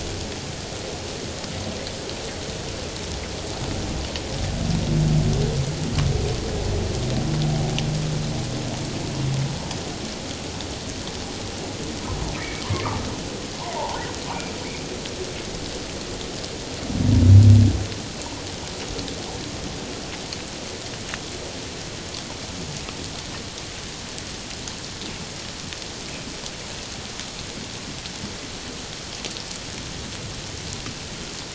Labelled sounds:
12.4	12.6	humpback whale, 1.7 to 2.4 kHz
13.6	14.0	humpback whale, 0.78 to 1.1 kHz

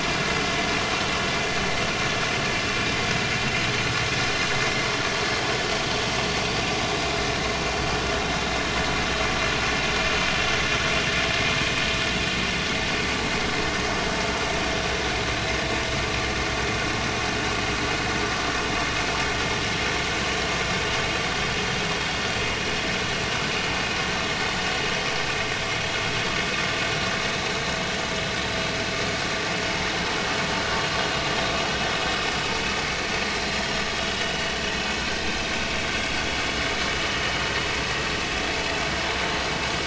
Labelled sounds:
6.9	7.3	vessel noise, 3.9 to 4.1 kHz

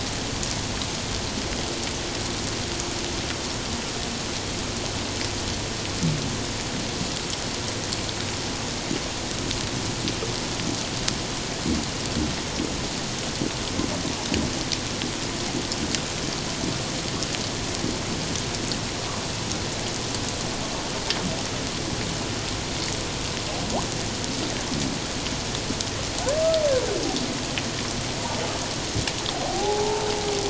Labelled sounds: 29.4	30.0	humpback whale, 0.78 to 0.97 kHz

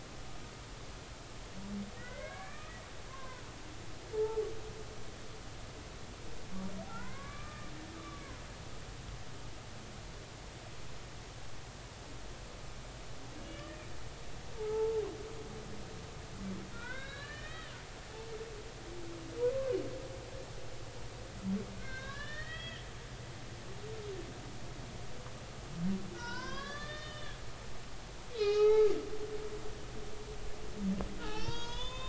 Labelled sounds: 2.0	3.4	humpback whale, 0.99 to 2.6 kHz
4.1	4.4	humpback whale, 0.83 to 1.1 kHz
6.9	8.4	humpback whale, 0.96 to 2.5 kHz
13.4	13.8	humpback whale, 1.7 to 3.0 kHz
14.6	15.0	humpback whale, 0.83 to 1.4 kHz
16.7	17.8	humpback whale, 1.3 to 4.1 kHz
19.4	19.7	humpback whale, 0.93 to 1.2 kHz
21.8	22.9	humpback whale, 1.0 to 4.2 kHz
26.1	27.4	humpback whale, 0.90 to 6.0 kHz
28.3	28.9	humpback whale, 0.80 to 5.2 kHz
31.2	32.0	humpback whale, 0.80 to 6.8 kHz

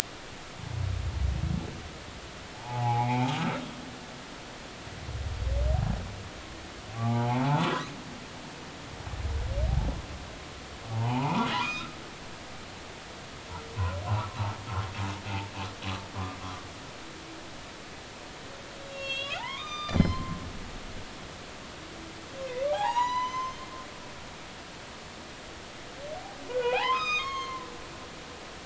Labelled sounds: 2.5	3.4	humpback whale, 0.80 to 2.5 kHz
6.9	7.7	humpback whale, 0.80 to 2.6 kHz
10.9	12.0	humpback whale, 0.80 to 5.1 kHz
18.8	20.4	humpback whale, 0.80 to 6.7 kHz
22.7	24.6	humpback whale, 0.80 to 6.3 kHz
26.5	27.7	humpback whale, 0.80 to 6.6 kHz

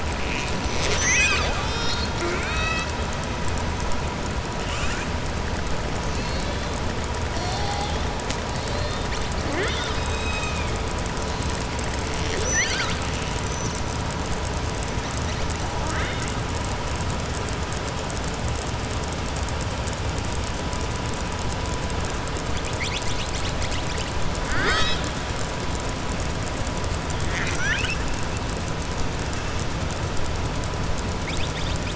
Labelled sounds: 4.6	5.0	killer whale, southern resident, 1.2 to 3.7 kHz
6.1	6.6	killer whale, southern resident, 2.2 to 4.8 kHz
8.5	9.1	killer whale, southern resident, 3.6 to 4.6 kHz
12.1	13.0	killer whale, southern resident, 0.58 to 7.7 kHz
26.9	28.0	killer whale, southern resident, 1.4 to 7.9 kHz

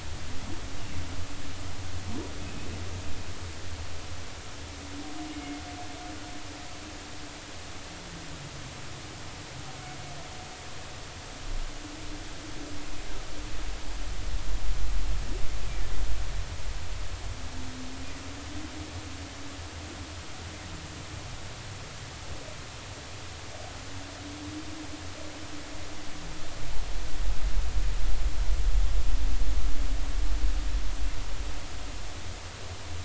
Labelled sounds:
2.4	2.7	humpback whale, 2.5 to 2.7 kHz
5.3	5.6	humpback whale, 2.1 to 2.3 kHz

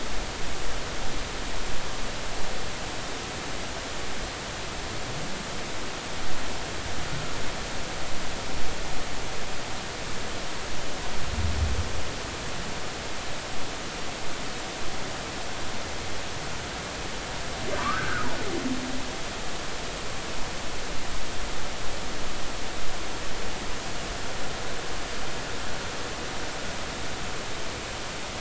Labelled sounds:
17.8	18.3	humpback whale, 0.93 to 1.7 kHz

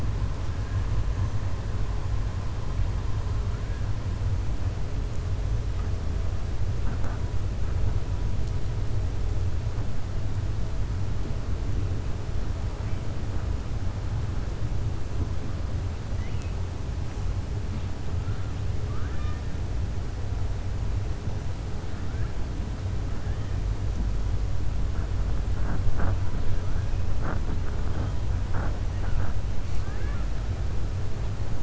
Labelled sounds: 18.8	19.4	killer whale, southern resident, 1.1 to 4.2 kHz
29.7	30.2	killer whale, southern resident, 1.1 to 2.9 kHz

